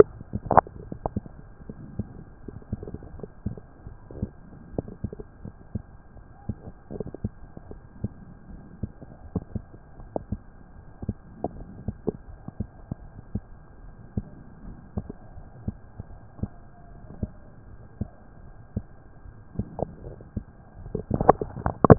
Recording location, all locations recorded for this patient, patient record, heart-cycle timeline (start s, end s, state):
mitral valve (MV)
aortic valve (AV)+pulmonary valve (PV)+tricuspid valve (TV)+mitral valve (MV)
#Age: Adolescent
#Sex: Male
#Height: 144.0 cm
#Weight: 41.3 kg
#Pregnancy status: False
#Murmur: Present
#Murmur locations: tricuspid valve (TV)
#Most audible location: tricuspid valve (TV)
#Systolic murmur timing: Early-systolic
#Systolic murmur shape: Plateau
#Systolic murmur grading: I/VI
#Systolic murmur pitch: Low
#Systolic murmur quality: Harsh
#Diastolic murmur timing: nan
#Diastolic murmur shape: nan
#Diastolic murmur grading: nan
#Diastolic murmur pitch: nan
#Diastolic murmur quality: nan
#Outcome: Abnormal
#Campaign: 2015 screening campaign
0.00	5.39	unannotated
5.39	5.54	S1
5.54	5.74	systole
5.74	5.84	S2
5.84	6.10	diastole
6.10	6.24	S1
6.24	6.45	systole
6.45	6.58	S2
6.58	6.90	diastole
6.90	7.04	S1
7.04	7.20	systole
7.20	7.34	S2
7.34	7.65	diastole
7.65	7.78	S1
7.78	8.00	systole
8.00	8.14	S2
8.14	8.50	diastole
8.50	8.64	S1
8.64	8.80	systole
8.80	8.92	S2
8.92	9.19	diastole
9.19	9.32	S1
9.32	9.52	systole
9.52	9.66	S2
9.66	9.96	diastole
9.96	10.10	S1
10.10	10.28	systole
10.28	10.42	S2
10.42	10.72	diastole
10.72	10.84	S1
10.84	11.04	systole
11.04	11.16	S2
11.16	11.51	diastole
11.51	11.68	S1
11.68	11.84	systole
11.84	11.98	S2
11.98	12.26	diastole
12.26	12.40	S1
12.40	12.56	systole
12.56	12.70	S2
12.70	12.98	diastole
12.98	13.12	S1
13.12	13.32	systole
13.32	13.44	S2
13.44	13.77	diastole
13.77	13.92	S1
13.92	14.14	systole
14.14	14.28	S2
14.28	14.63	diastole
14.63	14.78	S1
14.78	14.94	systole
14.94	15.08	S2
15.08	15.33	diastole
15.33	15.48	S1
15.48	15.66	systole
15.66	15.76	S2
15.76	16.06	diastole
16.06	16.20	S1
16.20	16.40	systole
16.40	16.54	S2
16.54	16.87	diastole
16.87	17.00	S1
17.00	17.20	systole
17.20	17.34	S2
17.34	17.62	diastole
17.62	17.76	S1
17.76	17.98	systole
17.98	18.12	S2
18.12	18.41	diastole
18.41	18.52	S1
18.52	18.74	systole
18.74	18.88	S2
18.88	19.22	diastole
19.22	19.36	S1
19.36	21.98	unannotated